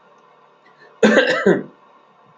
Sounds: Cough